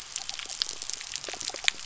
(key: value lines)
label: biophony
recorder: SoundTrap 300